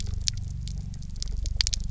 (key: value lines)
label: anthrophony, boat engine
recorder: SoundTrap 300